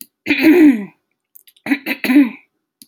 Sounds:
Throat clearing